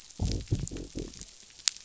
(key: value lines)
label: biophony
recorder: SoundTrap 500